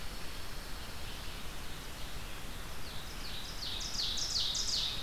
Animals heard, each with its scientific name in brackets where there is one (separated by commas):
Red-eyed Vireo (Vireo olivaceus), Ovenbird (Seiurus aurocapilla), Pine Warbler (Setophaga pinus)